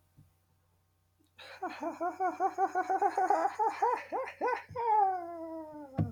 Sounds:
Laughter